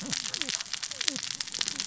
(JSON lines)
{"label": "biophony, cascading saw", "recorder": "SoundTrap 600 or HydroMoth"}